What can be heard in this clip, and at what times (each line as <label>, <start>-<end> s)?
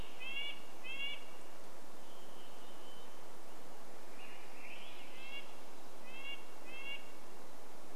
Red-breasted Nuthatch song, 0-2 s
Varied Thrush song, 2-4 s
Swainson's Thrush song, 4-6 s
Red-breasted Nuthatch song, 4-8 s